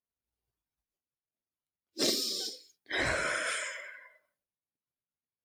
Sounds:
Sigh